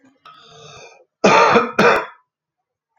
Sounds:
Cough